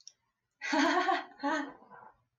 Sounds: Laughter